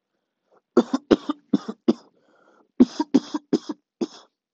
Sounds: Cough